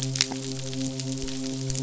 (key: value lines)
label: biophony, midshipman
recorder: SoundTrap 500